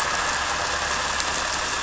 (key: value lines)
label: anthrophony, boat engine
recorder: SoundTrap 300